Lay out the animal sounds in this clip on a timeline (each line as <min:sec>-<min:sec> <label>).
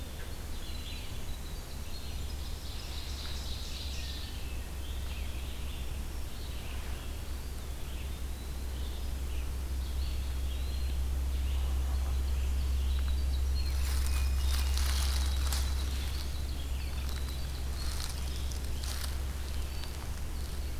0:00.0-0:02.9 Winter Wren (Troglodytes hiemalis)
0:00.0-0:20.8 Red-eyed Vireo (Vireo olivaceus)
0:02.5-0:04.5 Ovenbird (Seiurus aurocapilla)
0:07.1-0:08.8 Eastern Wood-Pewee (Contopus virens)
0:09.8-0:10.9 Eastern Wood-Pewee (Contopus virens)
0:12.4-0:18.7 Winter Wren (Troglodytes hiemalis)